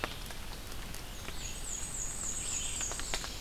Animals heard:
Red-eyed Vireo (Vireo olivaceus)
Black-and-white Warbler (Mniotilta varia)

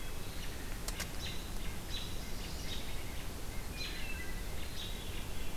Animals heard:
Chestnut-sided Warbler (Setophaga pensylvanica)
American Robin (Turdus migratorius)
Hermit Thrush (Catharus guttatus)

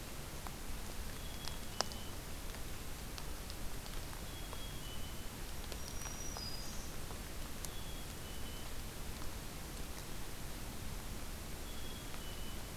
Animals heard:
Black-capped Chickadee (Poecile atricapillus)
Black-throated Green Warbler (Setophaga virens)

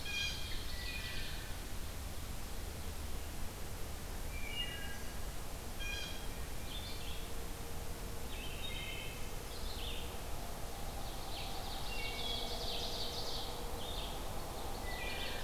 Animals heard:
Red-eyed Vireo (Vireo olivaceus)
Blue Jay (Cyanocitta cristata)
Ovenbird (Seiurus aurocapilla)
Wood Thrush (Hylocichla mustelina)

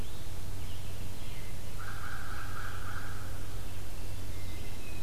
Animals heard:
American Crow (Corvus brachyrhynchos)
Hermit Thrush (Catharus guttatus)
Red-eyed Vireo (Vireo olivaceus)

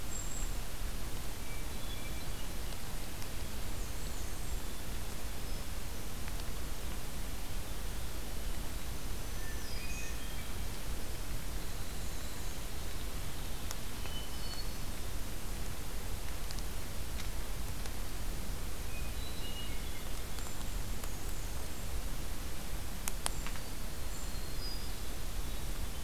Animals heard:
Golden-crowned Kinglet (Regulus satrapa)
Black-throated Green Warbler (Setophaga virens)
Hermit Thrush (Catharus guttatus)
White-throated Sparrow (Zonotrichia albicollis)
Black-and-white Warbler (Mniotilta varia)
Winter Wren (Troglodytes hiemalis)

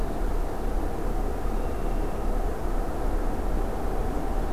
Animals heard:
Red-winged Blackbird (Agelaius phoeniceus)

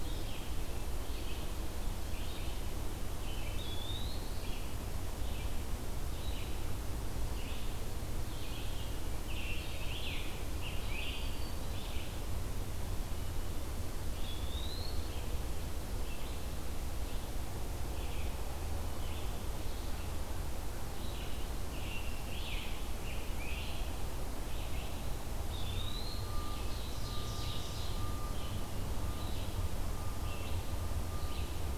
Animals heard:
Black-throated Green Warbler (Setophaga virens)
Ovenbird (Seiurus aurocapilla)
Red-eyed Vireo (Vireo olivaceus)
Scarlet Tanager (Piranga olivacea)
Eastern Wood-Pewee (Contopus virens)

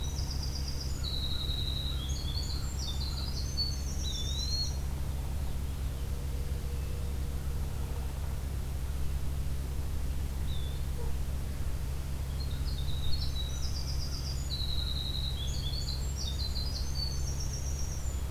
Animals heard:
Veery (Catharus fuscescens)
Eastern Wood-Pewee (Contopus virens)
Winter Wren (Troglodytes hiemalis)
American Crow (Corvus brachyrhynchos)

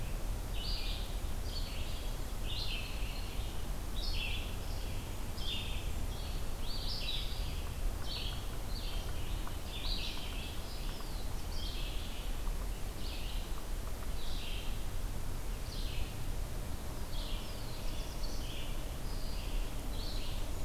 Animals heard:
unknown woodpecker
Red-eyed Vireo (Vireo olivaceus)
Black-throated Blue Warbler (Setophaga caerulescens)

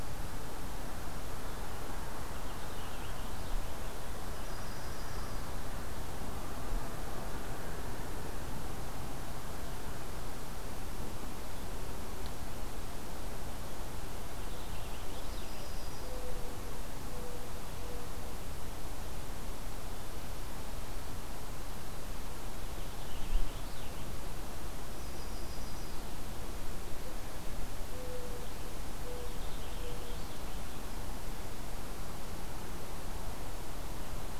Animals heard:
Purple Finch (Haemorhous purpureus)
Mourning Dove (Zenaida macroura)
Yellow-rumped Warbler (Setophaga coronata)

